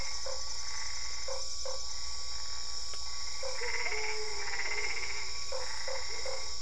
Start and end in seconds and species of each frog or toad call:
0.0	6.6	Boana albopunctata
0.2	1.8	Usina tree frog
5.4	6.5	Usina tree frog
~8pm

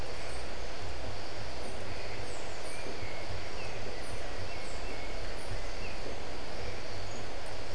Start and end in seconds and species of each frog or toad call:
none
6pm

